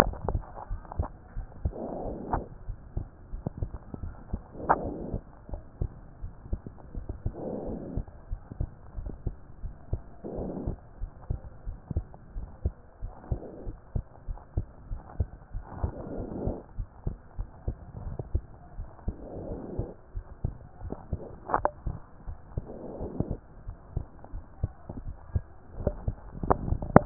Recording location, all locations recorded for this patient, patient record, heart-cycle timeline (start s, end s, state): pulmonary valve (PV)
aortic valve (AV)+aortic valve (AV)+pulmonary valve (PV)+tricuspid valve (TV)+mitral valve (MV)
#Age: Child
#Sex: Female
#Height: 137.0 cm
#Weight: 32.1 kg
#Pregnancy status: False
#Murmur: Absent
#Murmur locations: nan
#Most audible location: nan
#Systolic murmur timing: nan
#Systolic murmur shape: nan
#Systolic murmur grading: nan
#Systolic murmur pitch: nan
#Systolic murmur quality: nan
#Diastolic murmur timing: nan
#Diastolic murmur shape: nan
#Diastolic murmur grading: nan
#Diastolic murmur pitch: nan
#Diastolic murmur quality: nan
#Outcome: Abnormal
#Campaign: 2014 screening campaign
0.18	0.28	systole
0.28	0.44	S2
0.44	0.70	diastole
0.70	0.82	S1
0.82	0.98	systole
0.98	1.12	S2
1.12	1.36	diastole
1.36	1.48	S1
1.48	1.64	systole
1.64	1.78	S2
1.78	2.04	diastole
2.04	2.18	S1
2.18	2.30	systole
2.30	2.44	S2
2.44	2.66	diastole
2.66	2.78	S1
2.78	2.92	systole
2.92	3.08	S2
3.08	3.32	diastole
3.32	3.44	S1
3.44	3.58	systole
3.58	3.72	S2
3.72	4.00	diastole
4.00	4.14	S1
4.14	4.28	systole
4.28	4.42	S2
4.42	4.66	diastole
4.66	4.84	S1
4.84	5.04	systole
5.04	5.20	S2
5.20	5.48	diastole
5.48	5.62	S1
5.62	5.78	systole
5.78	5.92	S2
5.92	6.22	diastole
6.22	6.32	S1
6.32	6.50	systole
6.50	6.62	S2
6.62	6.92	diastole
6.92	7.06	S1
7.06	7.22	systole
7.22	7.36	S2
7.36	7.62	diastole
7.62	7.76	S1
7.76	7.94	systole
7.94	8.06	S2
8.06	8.30	diastole
8.30	8.40	S1
8.40	8.56	systole
8.56	8.70	S2
8.70	8.96	diastole
8.96	9.14	S1
9.14	9.24	systole
9.24	9.36	S2
9.36	9.62	diastole
9.62	9.74	S1
9.74	9.88	systole
9.88	10.02	S2
10.02	10.32	diastole
10.32	10.48	S1
10.48	10.66	systole
10.66	10.78	S2
10.78	11.02	diastole
11.02	11.12	S1
11.12	11.26	systole
11.26	11.40	S2
11.40	11.66	diastole
11.66	11.78	S1
11.78	11.90	systole
11.90	12.06	S2
12.06	12.36	diastole
12.36	12.50	S1
12.50	12.64	systole
12.64	12.74	S2
12.74	13.02	diastole
13.02	13.12	S1
13.12	13.30	systole
13.30	13.40	S2
13.40	13.66	diastole
13.66	13.78	S1
13.78	13.94	systole
13.94	14.04	S2
14.04	14.28	diastole
14.28	14.40	S1
14.40	14.52	systole
14.52	14.66	S2
14.66	14.90	diastole
14.90	15.02	S1
15.02	15.16	systole
15.16	15.30	S2
15.30	15.54	diastole
15.54	15.66	S1
15.66	15.80	systole
15.80	15.92	S2
15.92	16.12	diastole
16.12	16.28	S1
16.28	16.42	systole
16.42	16.58	S2
16.58	16.78	diastole
16.78	16.88	S1
16.88	17.06	systole
17.06	17.18	S2
17.18	17.38	diastole
17.38	17.48	S1
17.48	17.64	systole
17.64	17.78	S2
17.78	18.04	diastole
18.04	18.18	S1
18.18	18.34	systole
18.34	18.48	S2
18.48	18.76	diastole
18.76	18.88	S1
18.88	19.04	systole
19.04	19.18	S2
19.18	19.44	diastole
19.44	19.58	S1
19.58	19.74	systole
19.74	19.88	S2
19.88	20.16	diastole
20.16	20.24	S1
20.24	20.40	systole
20.40	20.56	S2
20.56	20.82	diastole
20.82	20.92	S1
20.92	21.10	systole
21.10	21.22	S2
21.22	21.54	diastole
21.54	21.70	S1
21.70	21.84	systole
21.84	22.00	S2
22.00	22.28	diastole
22.28	22.38	S1
22.38	22.56	systole
22.56	22.68	S2
22.68	22.98	diastole
22.98	23.10	S1
23.10	23.28	systole
23.28	23.40	S2
23.40	23.68	diastole
23.68	23.76	S1
23.76	23.92	systole
23.92	24.08	S2
24.08	24.34	diastole
24.34	24.44	S1
24.44	24.60	systole
24.60	24.74	S2
24.74	25.04	diastole
25.04	25.18	S1
25.18	25.36	systole
25.36	25.50	S2
25.50	25.78	diastole
25.78	25.94	S1
25.94	26.06	systole
26.06	26.18	S2
26.18	26.40	diastole
26.40	26.58	S1
26.58	26.62	systole
26.62	26.78	S2
26.78	27.00	diastole
27.00	27.06	S1